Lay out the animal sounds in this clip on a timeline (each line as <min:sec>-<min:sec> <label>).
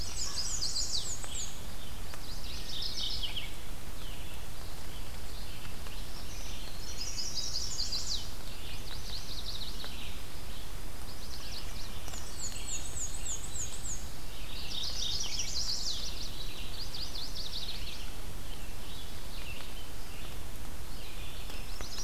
0:00.0-0:01.2 Chestnut-sided Warbler (Setophaga pensylvanica)
0:00.0-0:01.7 Black-and-white Warbler (Mniotilta varia)
0:00.0-0:22.0 Red-eyed Vireo (Vireo olivaceus)
0:02.0-0:03.6 Mourning Warbler (Geothlypis philadelphia)
0:06.5-0:08.5 Chestnut-sided Warbler (Setophaga pensylvanica)
0:07.2-0:07.9 Hermit Thrush (Catharus guttatus)
0:08.6-0:10.1 Yellow-rumped Warbler (Setophaga coronata)
0:10.8-0:12.0 Yellow-rumped Warbler (Setophaga coronata)
0:11.9-0:14.2 Black-and-white Warbler (Mniotilta varia)
0:14.2-0:15.6 Mourning Warbler (Geothlypis philadelphia)
0:14.6-0:16.1 Chestnut-sided Warbler (Setophaga pensylvanica)
0:16.6-0:18.0 Yellow-rumped Warbler (Setophaga coronata)
0:21.5-0:22.0 Chestnut-sided Warbler (Setophaga pensylvanica)